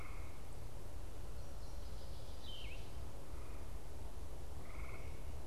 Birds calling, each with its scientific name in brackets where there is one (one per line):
Yellow-throated Vireo (Vireo flavifrons)